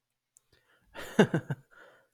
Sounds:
Laughter